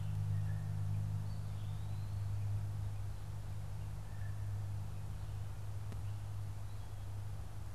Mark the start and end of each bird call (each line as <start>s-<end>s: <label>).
0.2s-0.8s: Blue Jay (Cyanocitta cristata)
3.8s-4.4s: Blue Jay (Cyanocitta cristata)